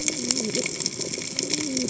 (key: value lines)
label: biophony, cascading saw
recorder: HydroMoth